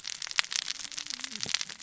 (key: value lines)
label: biophony, cascading saw
recorder: SoundTrap 600 or HydroMoth